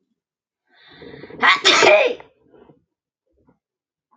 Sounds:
Sneeze